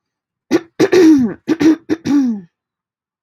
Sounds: Throat clearing